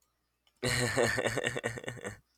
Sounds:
Laughter